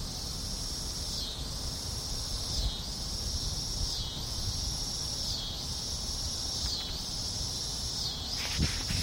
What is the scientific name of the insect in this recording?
Neotibicen pruinosus